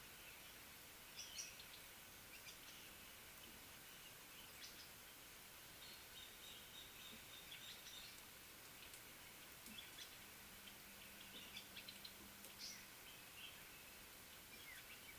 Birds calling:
Crowned Hornbill (Lophoceros alboterminatus), African Paradise-Flycatcher (Terpsiphone viridis)

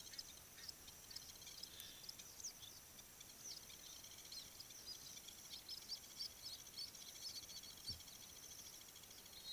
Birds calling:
Blacksmith Lapwing (Vanellus armatus), Common Sandpiper (Actitis hypoleucos), African Pipit (Anthus cinnamomeus)

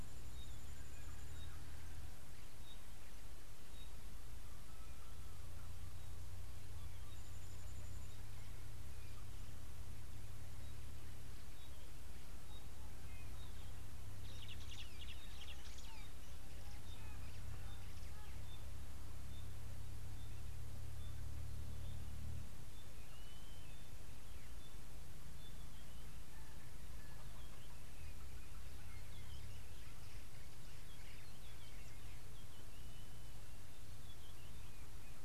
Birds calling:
Pygmy Batis (Batis perkeo), White-headed Buffalo-Weaver (Dinemellia dinemelli), Blue-naped Mousebird (Urocolius macrourus)

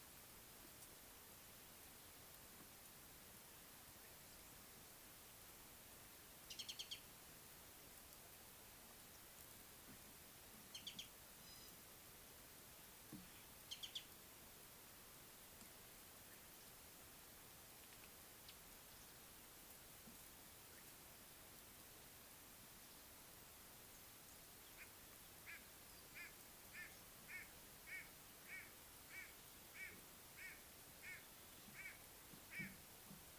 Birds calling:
Mariqua Sunbird (Cinnyris mariquensis), White-bellied Go-away-bird (Corythaixoides leucogaster)

